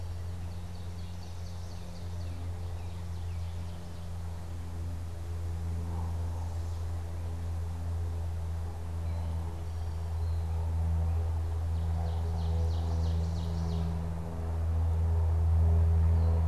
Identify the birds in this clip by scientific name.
Seiurus aurocapilla, Cardinalis cardinalis, Pipilo erythrophthalmus